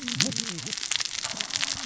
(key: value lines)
label: biophony, cascading saw
recorder: SoundTrap 600 or HydroMoth